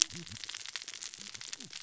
{"label": "biophony, cascading saw", "recorder": "SoundTrap 600 or HydroMoth"}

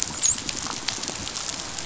{"label": "biophony, dolphin", "recorder": "SoundTrap 500"}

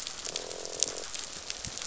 {"label": "biophony, croak", "recorder": "SoundTrap 500"}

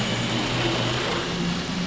{"label": "anthrophony, boat engine", "recorder": "SoundTrap 500"}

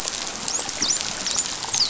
{"label": "biophony, dolphin", "recorder": "SoundTrap 500"}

